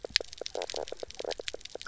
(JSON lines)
{"label": "biophony, knock croak", "recorder": "SoundTrap 300"}